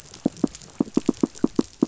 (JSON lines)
{"label": "biophony, knock", "recorder": "SoundTrap 500"}